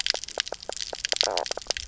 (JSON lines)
{"label": "biophony, knock croak", "recorder": "SoundTrap 300"}